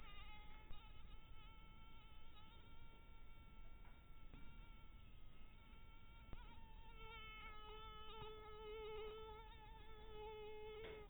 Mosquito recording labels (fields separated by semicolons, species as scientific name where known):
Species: mosquito; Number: one; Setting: cup